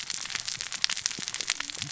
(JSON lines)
{"label": "biophony, cascading saw", "recorder": "SoundTrap 600 or HydroMoth"}